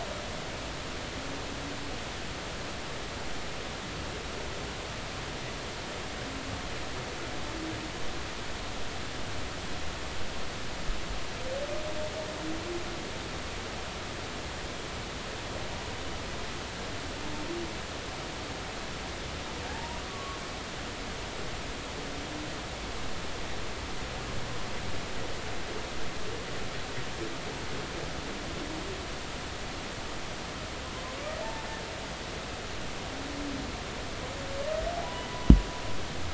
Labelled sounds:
19.7	20.4	humpback whale, 0.80 to 1.2 kHz
31.4	31.7	humpback whale, 0.83 to 0.96 kHz

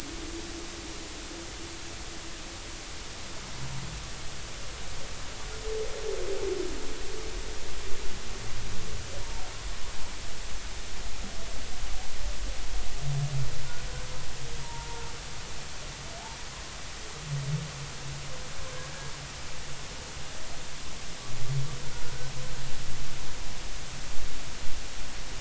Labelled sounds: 14.6	15.0	humpback whale, 0.86 to 0.99 kHz

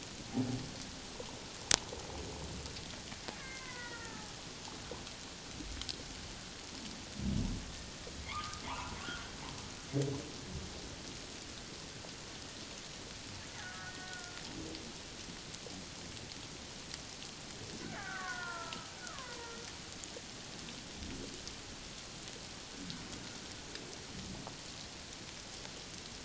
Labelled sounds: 3.4	4.3	killer whale, Bigg's (transient), 0.88 to 2.2 kHz
8.3	9.0	humpback whale, 0.81 to 1.5 kHz
13.5	14.4	killer whale, Bigg's (transient), 1.3 to 2.1 kHz
18.0	19.4	killer whale, Bigg's (transient), 0.88 to 2.0 kHz

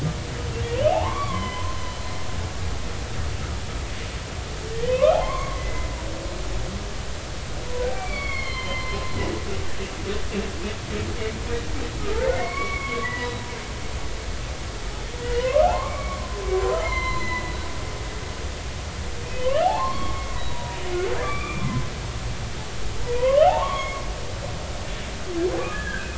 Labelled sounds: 0.9	1.8	humpback whale, 0.80 to 3.2 kHz
4.9	5.9	humpback whale, 0.96 to 2.4 kHz
8.0	9.1	humpback whale, 0.90 to 4.6 kHz
12.0	13.3	humpback whale, 0.93 to 2.3 kHz
15.2	16.3	humpback whale, 0.80 to 3.1 kHz
16.6	17.6	humpback whale, 0.96 to 4.2 kHz
19.4	21.7	humpback whale, 0.80 to 4.0 kHz
23.2	24.0	humpback whale, 0.80 to 3.4 kHz
25.6	26.1	humpback whale, 1.1 to 1.8 kHz

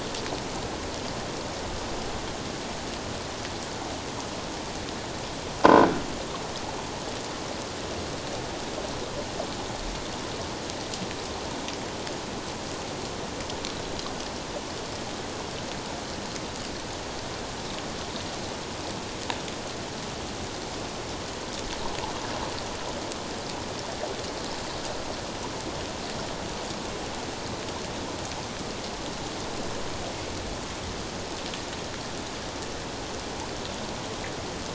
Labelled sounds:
5.6	5.9	croaking sound likely from a nearby submerged object, 1.4 to 1.6 kHz

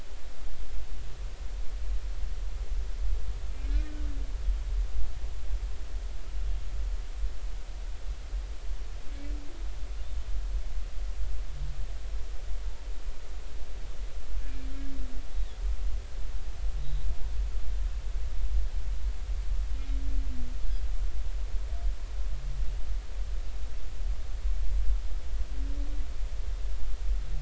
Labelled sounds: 3.6	3.9	humpback whale, 2.1 to 2.5 kHz
15.3	15.6	humpback whale, 3.3 to 3.9 kHz
16.8	17.0	humpback whale, 3.7 to 4.0 kHz

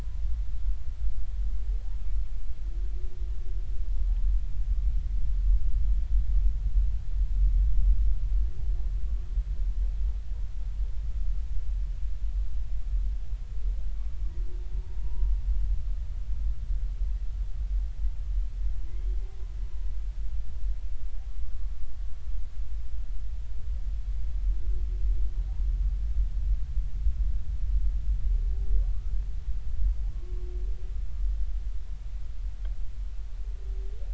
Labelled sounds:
15.0	15.3	humpback whale, 0.90 to 1.0 kHz
18.9	19.1	humpback whale, 2.0 to 2.2 kHz
30.1	30.5	humpback whale, 1.0 to 1.1 kHz

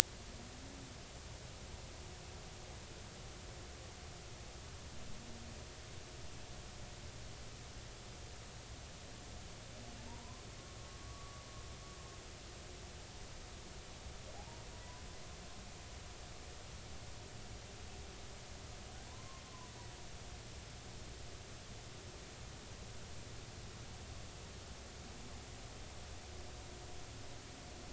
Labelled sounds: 10.1	10.4	humpback whale, 0.86 to 1.2 kHz
11.0	11.4	humpback whale, 1.1 to 1.2 kHz
14.4	14.6	humpback whale, 0.80 to 0.99 kHz
19.1	19.4	humpback whale, 0.93 to 1.2 kHz

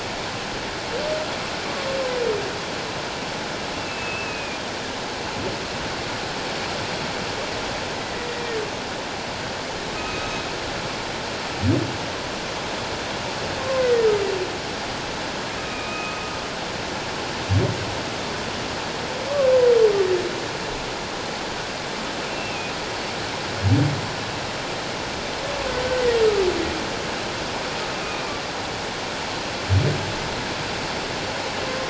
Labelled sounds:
3.7	4.6	humpback whale, 2.3 to 2.8 kHz
8.0	8.3	humpback whale, 1.9 to 2.1 kHz
10.0	10.5	humpback whale, 1.2 to 3.8 kHz
13.6	14.1	humpback whale, 1.0 to 2.1 kHz
15.6	16.2	humpback whale, 1.2 to 2.6 kHz
22.3	22.7	humpback whale, 2.4 to 2.8 kHz
28.0	28.4	humpback whale, 2.2 to 2.6 kHz

